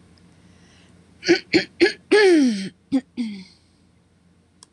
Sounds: Throat clearing